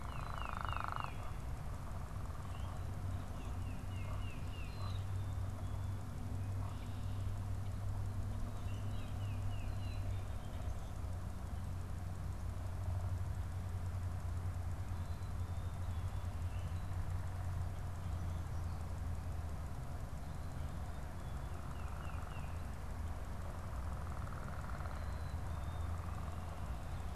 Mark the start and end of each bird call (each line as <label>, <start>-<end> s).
Black-capped Chickadee (Poecile atricapillus), 0.0-0.9 s
Tufted Titmouse (Baeolophus bicolor), 0.0-1.4 s
Tufted Titmouse (Baeolophus bicolor), 3.1-4.8 s
Black-capped Chickadee (Poecile atricapillus), 4.5-5.5 s
Common Grackle (Quiscalus quiscula), 8.3-9.3 s
Tufted Titmouse (Baeolophus bicolor), 8.5-10.1 s
Black-capped Chickadee (Poecile atricapillus), 9.6-10.4 s
Tufted Titmouse (Baeolophus bicolor), 21.5-22.6 s
Black-capped Chickadee (Poecile atricapillus), 24.8-25.9 s